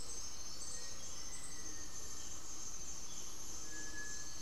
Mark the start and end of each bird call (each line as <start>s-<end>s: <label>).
0.0s-4.4s: Cinereous Tinamou (Crypturellus cinereus)
0.0s-4.4s: Gray-fronted Dove (Leptotila rufaxilla)
0.5s-2.3s: Black-faced Antthrush (Formicarius analis)
3.3s-4.4s: unidentified bird